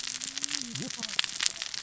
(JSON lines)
{"label": "biophony, cascading saw", "recorder": "SoundTrap 600 or HydroMoth"}